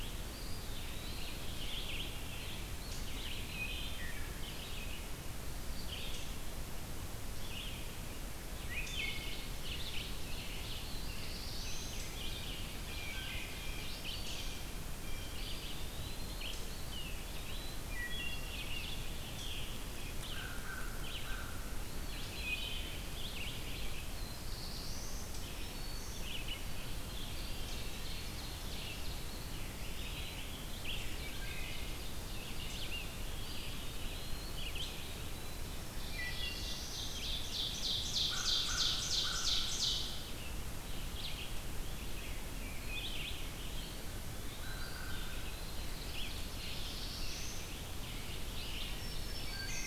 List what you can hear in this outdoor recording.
Red-eyed Vireo, Eastern Wood-Pewee, Wood Thrush, Ovenbird, Black-throated Blue Warbler, Blue Jay, American Crow, Black-throated Green Warbler, Rose-breasted Grosbeak